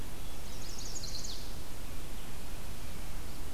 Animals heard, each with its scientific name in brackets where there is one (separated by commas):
Chestnut-sided Warbler (Setophaga pensylvanica)